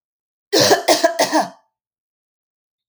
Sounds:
Cough